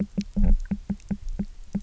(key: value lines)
label: biophony, knock croak
recorder: SoundTrap 300